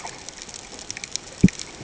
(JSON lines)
{"label": "ambient", "recorder": "HydroMoth"}